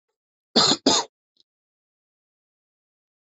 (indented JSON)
{
  "expert_labels": [
    {
      "quality": "good",
      "cough_type": "dry",
      "dyspnea": false,
      "wheezing": false,
      "stridor": false,
      "choking": false,
      "congestion": false,
      "nothing": true,
      "diagnosis": "upper respiratory tract infection",
      "severity": "unknown"
    }
  ],
  "age": 18,
  "gender": "female",
  "respiratory_condition": false,
  "fever_muscle_pain": false,
  "status": "symptomatic"
}